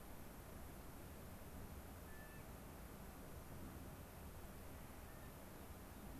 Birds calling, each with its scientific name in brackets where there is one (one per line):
Clark's Nutcracker (Nucifraga columbiana)
unidentified bird